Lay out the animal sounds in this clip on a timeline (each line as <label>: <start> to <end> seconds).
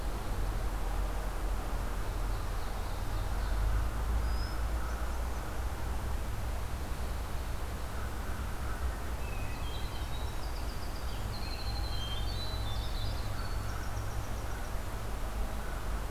Ovenbird (Seiurus aurocapilla): 1.8 to 3.7 seconds
Hermit Thrush (Catharus guttatus): 4.2 to 5.7 seconds
American Crow (Corvus brachyrhynchos): 7.9 to 8.8 seconds
Winter Wren (Troglodytes hiemalis): 9.1 to 14.9 seconds
Hermit Thrush (Catharus guttatus): 11.7 to 13.1 seconds